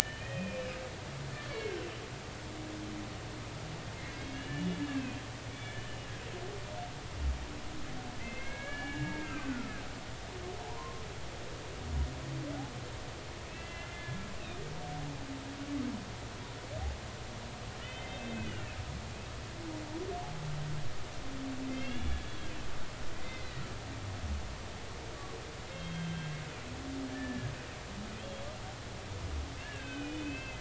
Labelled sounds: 0.2	0.6	humpback whale, 2.4 to 2.6 kHz
1.0	1.9	humpback whale, 1.5 to 3.2 kHz
4.2	6.1	humpback whale, 1.5 to 3.6 kHz
8.2	9.8	humpback whale, 1.2 to 2.9 kHz
10.6	11.0	humpback whale, 0.80 to 1.1 kHz
13.5	14.2	humpback whale, 1.6 to 3.1 kHz
17.8	18.8	humpback whale, 2.5 to 3.2 kHz
21.7	22.3	humpback whale, 2.5 to 3.5 kHz
23.2	23.6	humpback whale, 2.0 to 4.2 kHz
25.7	26.3	humpback whale, 1.5 to 3.3 kHz
27.1	27.5	humpback whale, 1.6 to 1.9 kHz
28.2	28.5	humpback whale, 3.1 to 3.4 kHz
29.6	30.6	humpback whale, 1.4 to 3.2 kHz

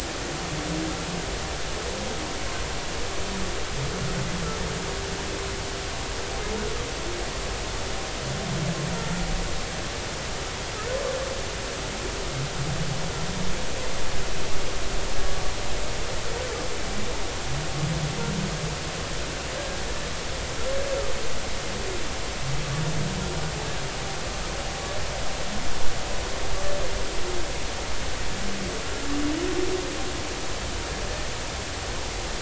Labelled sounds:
19.6	19.8	humpback whale, 1.6 to 1.7 kHz

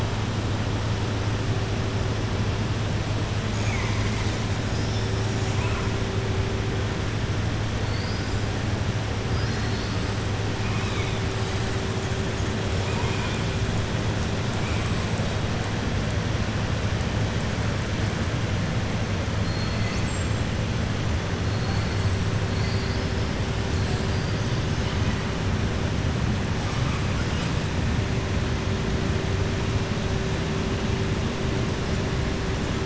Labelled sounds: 9.3	10.0	killer whale, southern resident, 3.9 to 5.9 kHz
10.6	11.2	killer whale, southern resident, 1.3 to 3.9 kHz
19.4	20.4	killer whale, southern resident, 3.6 to 8.0 kHz
21.5	22.0	killer whale, southern resident, 4.3 to 4.5 kHz

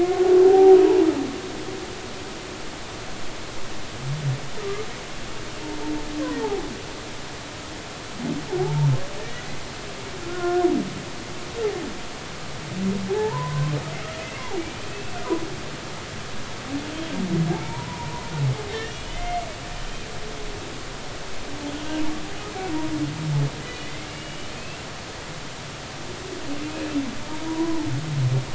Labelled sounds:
0.4	0.8	humpback whale, 0.80 to 0.96 kHz
4.6	4.8	humpback whale, 1.1 to 1.3 kHz
6.4	6.7	humpback whale, 0.80 to 0.93 kHz
8.6	9.4	humpback whale, 0.80 to 2.0 kHz
10.3	10.6	humpback whale, 1.3 to 1.9 kHz
13.1	15.2	humpback whale, 0.80 to 2.7 kHz
17.5	18.3	humpback whale, 0.80 to 2.4 kHz
19.1	20.0	humpback whale, 2.0 to 3.2 kHz
23.6	24.8	humpback whale, 1.9 to 3.0 kHz
27.5	27.9	humpback whale, 0.83 to 1.1 kHz

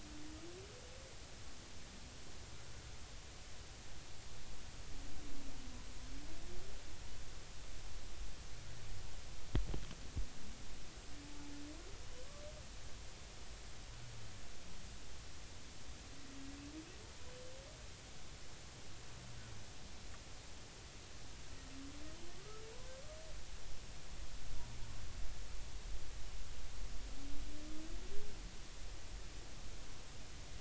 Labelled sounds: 22.4	22.6	humpback whale, 1.1 to 1.4 kHz

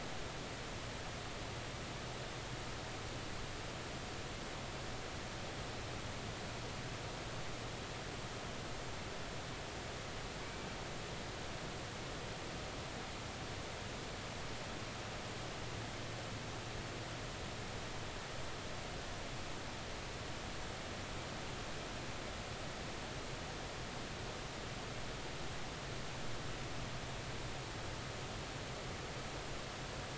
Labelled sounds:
10.4	10.7	killer whale, 2.2 to 2.4 kHz

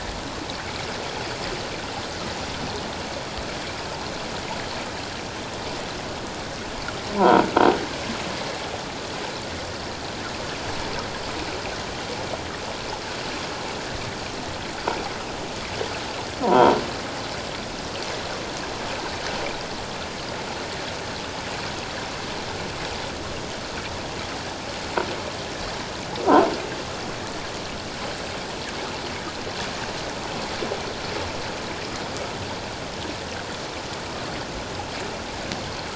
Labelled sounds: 7.1	7.5	croaking sound likely from a nearby submerged object, 0.78 to 1.1 kHz
16.4	16.8	croaking sound likely from a nearby submerged object, 0.84 to 1.0 kHz

